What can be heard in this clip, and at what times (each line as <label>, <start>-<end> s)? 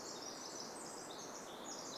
Pacific Wren song, 0-2 s